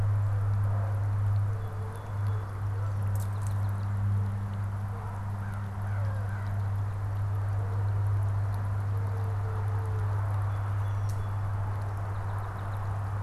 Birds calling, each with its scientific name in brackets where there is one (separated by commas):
Song Sparrow (Melospiza melodia), American Crow (Corvus brachyrhynchos)